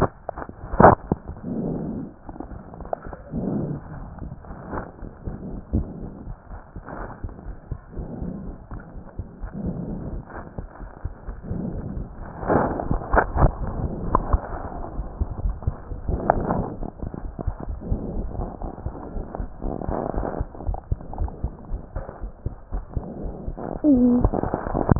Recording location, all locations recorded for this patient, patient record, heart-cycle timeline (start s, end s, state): pulmonary valve (PV)
aortic valve (AV)+pulmonary valve (PV)+tricuspid valve (TV)+mitral valve (MV)
#Age: Child
#Sex: Male
#Height: 138.0 cm
#Weight: 31.3 kg
#Pregnancy status: False
#Murmur: Absent
#Murmur locations: nan
#Most audible location: nan
#Systolic murmur timing: nan
#Systolic murmur shape: nan
#Systolic murmur grading: nan
#Systolic murmur pitch: nan
#Systolic murmur quality: nan
#Diastolic murmur timing: nan
#Diastolic murmur shape: nan
#Diastolic murmur grading: nan
#Diastolic murmur pitch: nan
#Diastolic murmur quality: nan
#Outcome: Normal
#Campaign: 2015 screening campaign
0.00	7.44	unannotated
7.44	7.55	S1
7.55	7.70	systole
7.70	7.76	S2
7.76	7.95	diastole
7.95	8.03	S1
8.03	8.20	systole
8.20	8.25	S2
8.25	8.46	diastole
8.46	8.53	S1
8.53	8.71	systole
8.71	8.78	S2
8.78	8.94	diastole
8.94	9.00	S1
9.00	9.18	systole
9.18	9.24	S2
9.24	9.40	diastole
9.40	9.46	S1
9.46	10.33	unannotated
10.33	10.42	S1
10.42	10.56	systole
10.56	10.61	S2
10.61	10.79	diastole
10.79	10.88	S1
10.88	11.02	systole
11.02	11.09	S2
11.09	11.26	diastole
11.26	11.32	S1
11.32	11.49	systole
11.49	11.55	S2
11.55	11.73	diastole
11.73	11.80	S1
11.80	11.95	systole
11.95	12.05	S2
12.05	14.95	unannotated
14.95	15.04	S1
15.04	15.18	systole
15.18	15.25	S2
15.25	15.43	diastole
15.43	15.52	S1
15.52	15.66	systole
15.66	15.72	S2
15.72	15.88	diastole
15.88	15.97	S1
15.97	16.77	unannotated
16.77	16.87	S1
16.87	17.00	systole
17.00	17.06	S2
17.06	17.21	diastole
17.21	17.28	S1
17.28	17.43	systole
17.43	17.52	S2
17.52	17.66	diastole
17.66	17.75	S1
17.75	17.89	systole
17.89	17.96	S2
17.96	18.15	diastole
18.15	18.23	S1
18.23	18.37	systole
18.37	18.44	S2
18.44	18.62	diastole
18.62	18.70	S1
18.70	18.85	systole
18.85	18.90	S2
18.90	19.13	diastole
19.13	19.23	S1
19.23	19.37	systole
19.37	19.46	S2
19.46	19.61	diastole
19.61	19.70	S1
19.70	24.99	unannotated